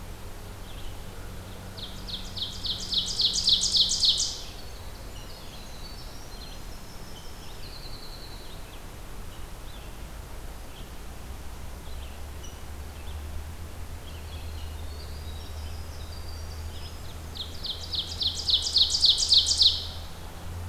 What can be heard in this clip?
Red-eyed Vireo, Ovenbird, Winter Wren, Rose-breasted Grosbeak